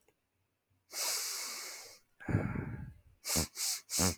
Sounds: Sniff